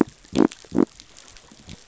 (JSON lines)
{"label": "biophony", "recorder": "SoundTrap 500"}